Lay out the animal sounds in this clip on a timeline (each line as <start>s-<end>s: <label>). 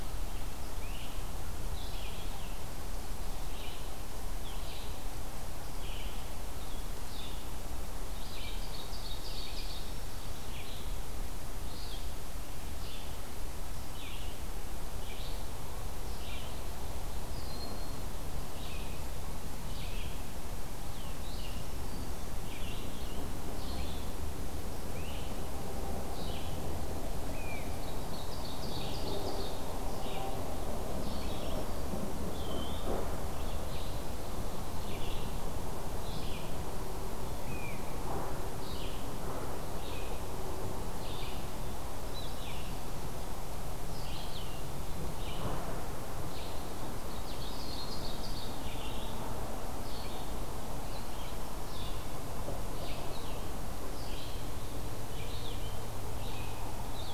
0.0s-26.5s: Red-eyed Vireo (Vireo olivaceus)
0.7s-1.1s: Great Crested Flycatcher (Myiarchus crinitus)
8.1s-10.0s: Ovenbird (Seiurus aurocapilla)
9.5s-10.5s: Black-throated Green Warbler (Setophaga virens)
17.2s-18.1s: Broad-winged Hawk (Buteo platypterus)
21.5s-22.3s: Black-throated Green Warbler (Setophaga virens)
24.8s-25.3s: Great Crested Flycatcher (Myiarchus crinitus)
27.2s-57.1s: Red-eyed Vireo (Vireo olivaceus)
27.3s-27.7s: Great Crested Flycatcher (Myiarchus crinitus)
27.6s-29.9s: Ovenbird (Seiurus aurocapilla)
32.2s-32.9s: Eastern Wood-Pewee (Contopus virens)
37.4s-37.9s: Great Crested Flycatcher (Myiarchus crinitus)
46.8s-48.7s: Ovenbird (Seiurus aurocapilla)